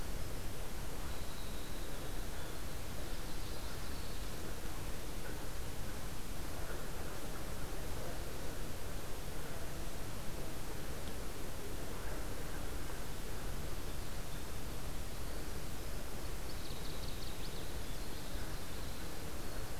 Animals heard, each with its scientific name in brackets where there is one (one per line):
Northern Waterthrush (Parkesia noveboracensis)
Winter Wren (Troglodytes hiemalis)